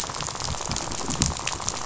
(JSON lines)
{"label": "biophony, rattle", "recorder": "SoundTrap 500"}